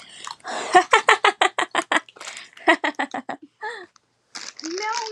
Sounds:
Laughter